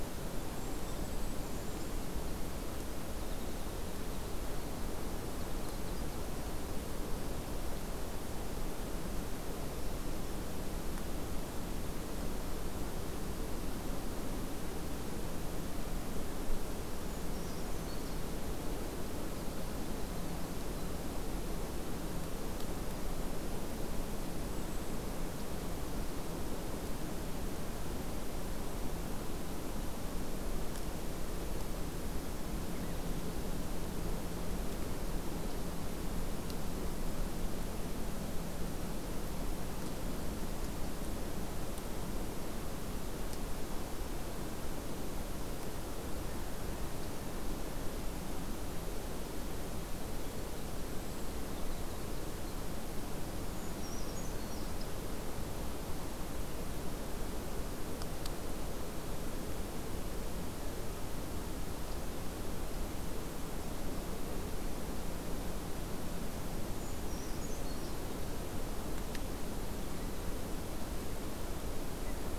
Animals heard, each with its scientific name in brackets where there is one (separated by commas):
Golden-crowned Kinglet (Regulus satrapa), Brown Creeper (Certhia americana), Blackpoll Warbler (Setophaga striata), Winter Wren (Troglodytes hiemalis), Black-throated Green Warbler (Setophaga virens)